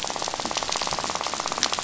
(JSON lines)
{"label": "biophony, rattle", "recorder": "SoundTrap 500"}